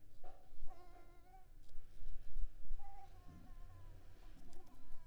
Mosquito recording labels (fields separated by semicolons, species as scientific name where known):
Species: Anopheles coustani; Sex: female; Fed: unfed; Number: one; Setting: cup